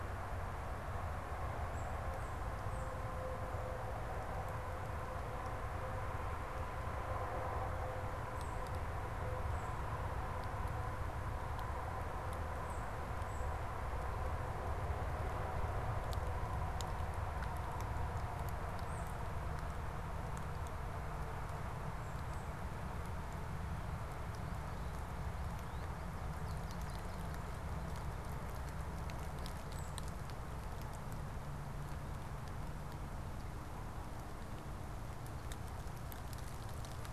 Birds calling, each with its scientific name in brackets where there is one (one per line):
American Goldfinch (Spinus tristis)
Tufted Titmouse (Baeolophus bicolor)